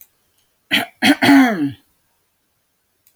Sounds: Throat clearing